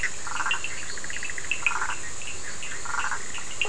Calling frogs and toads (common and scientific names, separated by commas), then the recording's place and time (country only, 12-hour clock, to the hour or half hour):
Bischoff's tree frog (Boana bischoffi), Burmeister's tree frog (Boana prasina), Cochran's lime tree frog (Sphaenorhynchus surdus)
Brazil, 11pm